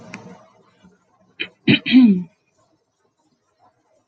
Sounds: Throat clearing